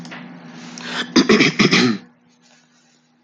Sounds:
Throat clearing